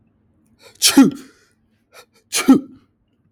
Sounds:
Sneeze